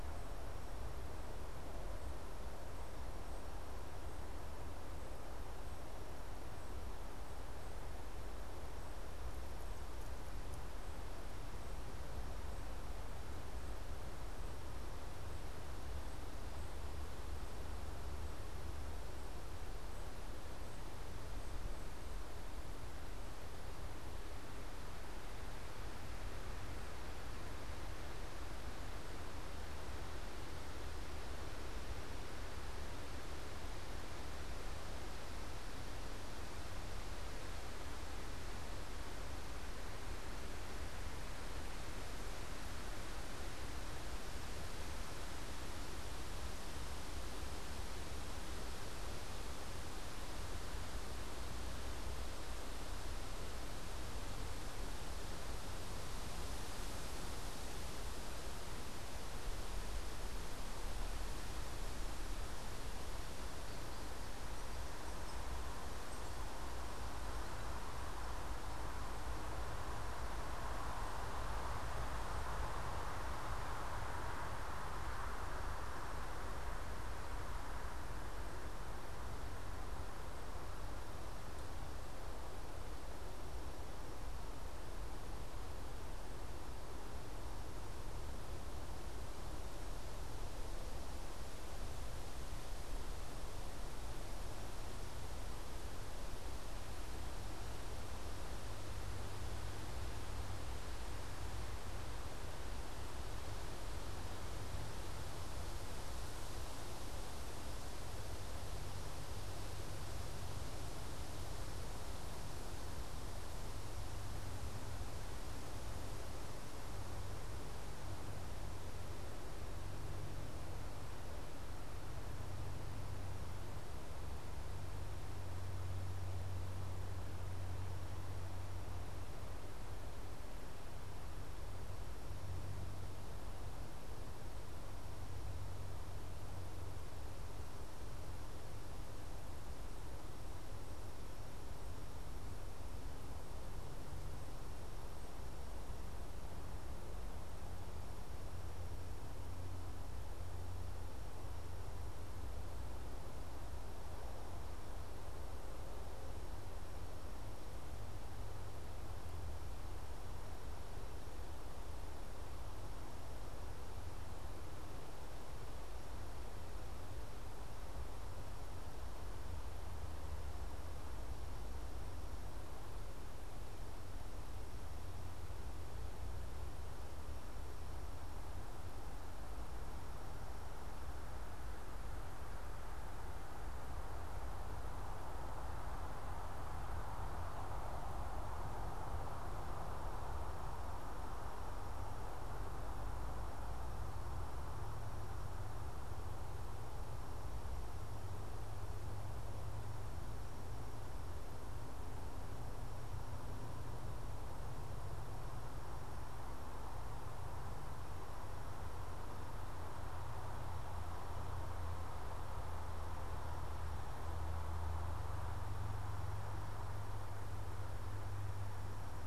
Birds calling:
unidentified bird

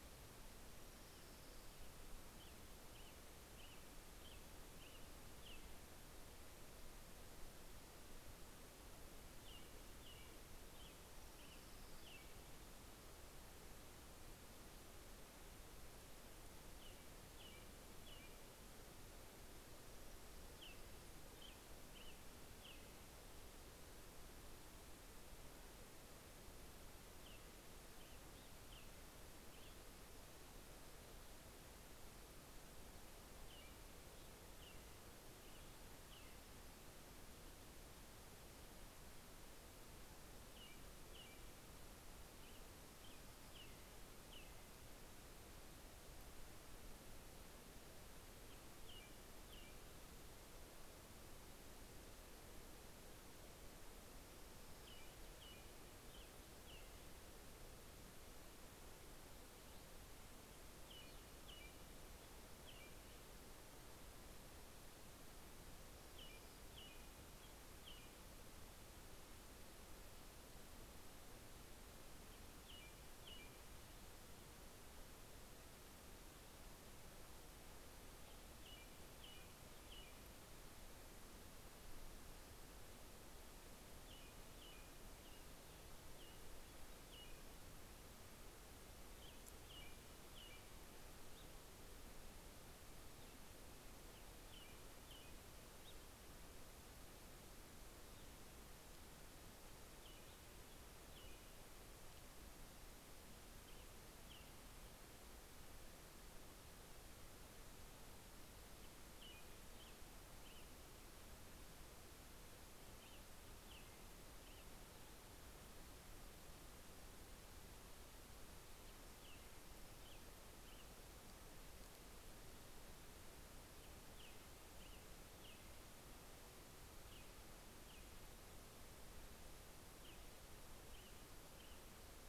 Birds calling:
Orange-crowned Warbler (Leiothlypis celata), American Robin (Turdus migratorius)

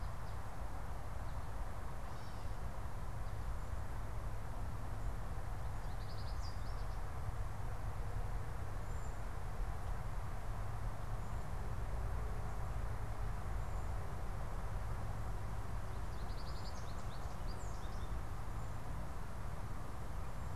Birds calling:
American Goldfinch (Spinus tristis), Cedar Waxwing (Bombycilla cedrorum)

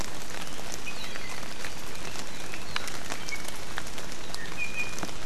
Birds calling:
Iiwi (Drepanis coccinea)

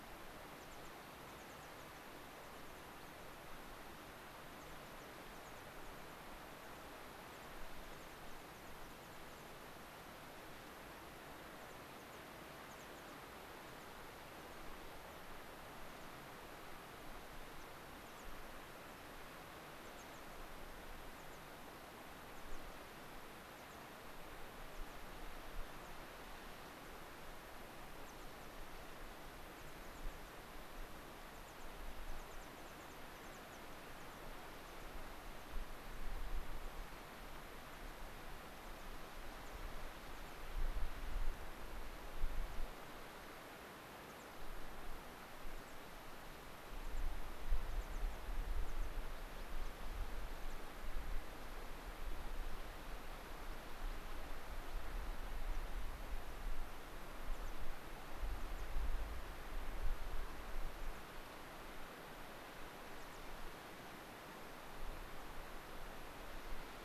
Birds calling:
American Pipit (Anthus rubescens), unidentified bird

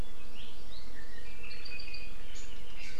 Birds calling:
Hawaii Amakihi (Chlorodrepanis virens), Apapane (Himatione sanguinea)

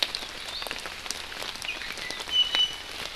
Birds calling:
Iiwi (Drepanis coccinea)

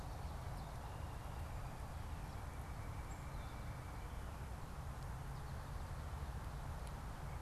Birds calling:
Northern Cardinal (Cardinalis cardinalis), Black-capped Chickadee (Poecile atricapillus)

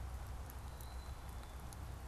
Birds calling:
Black-capped Chickadee (Poecile atricapillus)

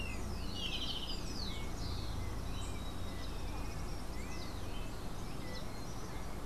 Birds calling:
Rufous-collared Sparrow (Zonotrichia capensis), Golden-faced Tyrannulet (Zimmerius chrysops)

